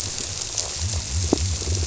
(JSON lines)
{"label": "biophony", "recorder": "SoundTrap 300"}